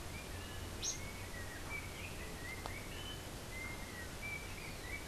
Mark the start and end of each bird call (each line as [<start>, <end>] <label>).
[0.00, 1.14] unidentified bird
[0.00, 5.08] Yellow-backed Oriole (Icterus chrysater)